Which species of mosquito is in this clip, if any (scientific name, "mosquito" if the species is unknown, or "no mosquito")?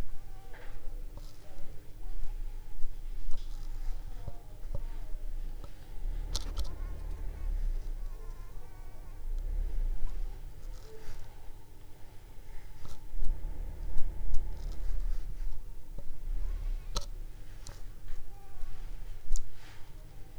Anopheles squamosus